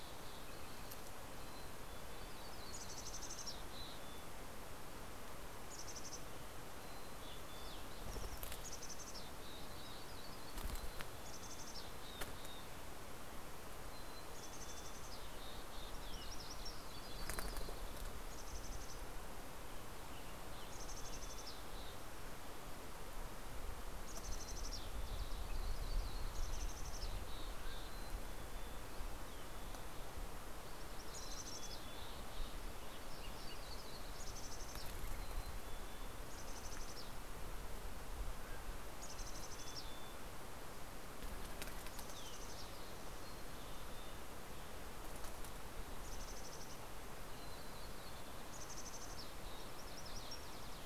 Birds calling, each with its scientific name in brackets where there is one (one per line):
MacGillivray's Warbler (Geothlypis tolmiei)
Western Tanager (Piranga ludoviciana)
Green-tailed Towhee (Pipilo chlorurus)
Mountain Quail (Oreortyx pictus)
Mountain Chickadee (Poecile gambeli)
Red-breasted Nuthatch (Sitta canadensis)
Dark-eyed Junco (Junco hyemalis)